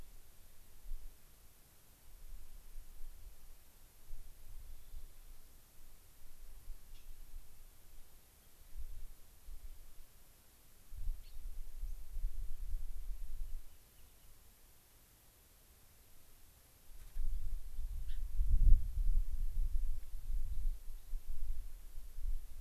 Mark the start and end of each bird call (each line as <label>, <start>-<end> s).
Rock Wren (Salpinctes obsoletus), 4.5-5.5 s
Gray-crowned Rosy-Finch (Leucosticte tephrocotis), 11.1-11.4 s
Rock Wren (Salpinctes obsoletus), 13.3-14.4 s
Gray-crowned Rosy-Finch (Leucosticte tephrocotis), 18.0-18.2 s